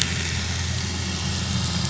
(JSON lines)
{"label": "anthrophony, boat engine", "recorder": "SoundTrap 500"}